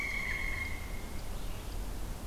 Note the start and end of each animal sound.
[0.00, 1.11] Pileated Woodpecker (Dryocopus pileatus)
[0.00, 2.27] Red-eyed Vireo (Vireo olivaceus)

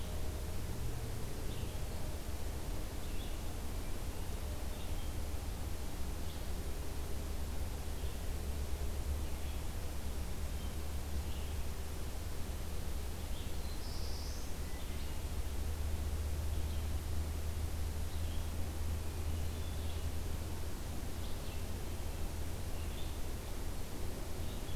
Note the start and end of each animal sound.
[0.00, 3.72] Red-eyed Vireo (Vireo olivaceus)
[4.59, 24.76] Red-eyed Vireo (Vireo olivaceus)
[13.30, 14.66] Black-throated Blue Warbler (Setophaga caerulescens)
[14.49, 15.32] Hermit Thrush (Catharus guttatus)
[19.00, 19.91] Hermit Thrush (Catharus guttatus)

